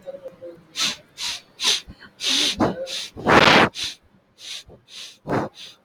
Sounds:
Sniff